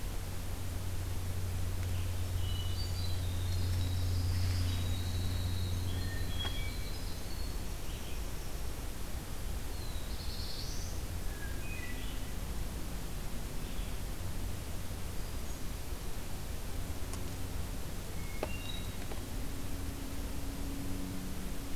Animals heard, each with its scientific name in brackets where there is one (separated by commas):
Winter Wren (Troglodytes hiemalis), Black-throated Blue Warbler (Setophaga caerulescens), Hermit Thrush (Catharus guttatus), Red-eyed Vireo (Vireo olivaceus)